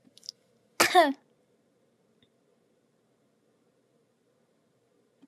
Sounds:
Cough